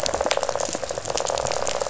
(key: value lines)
label: biophony, rattle
recorder: SoundTrap 500